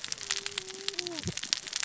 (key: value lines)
label: biophony, cascading saw
recorder: SoundTrap 600 or HydroMoth